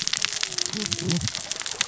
{"label": "biophony, cascading saw", "recorder": "SoundTrap 600 or HydroMoth"}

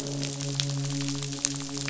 {"label": "biophony, midshipman", "recorder": "SoundTrap 500"}
{"label": "biophony", "recorder": "SoundTrap 500"}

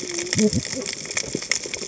{"label": "biophony, cascading saw", "recorder": "HydroMoth"}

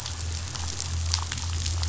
{"label": "anthrophony, boat engine", "recorder": "SoundTrap 500"}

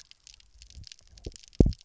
{"label": "biophony, double pulse", "recorder": "SoundTrap 300"}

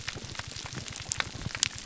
{"label": "biophony, pulse", "recorder": "SoundTrap 300"}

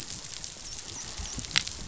{"label": "biophony, dolphin", "recorder": "SoundTrap 500"}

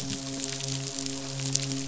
{"label": "biophony, midshipman", "recorder": "SoundTrap 500"}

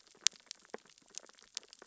{"label": "biophony, sea urchins (Echinidae)", "recorder": "SoundTrap 600 or HydroMoth"}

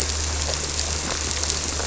{"label": "anthrophony, boat engine", "recorder": "SoundTrap 300"}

